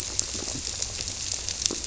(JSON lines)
{"label": "biophony", "recorder": "SoundTrap 300"}